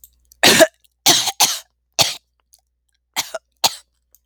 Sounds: Throat clearing